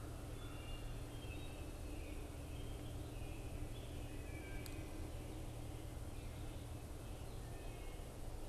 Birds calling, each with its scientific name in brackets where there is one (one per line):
Wood Thrush (Hylocichla mustelina)